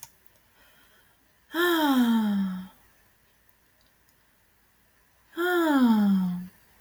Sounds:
Sigh